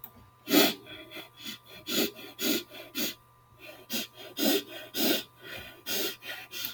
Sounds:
Sniff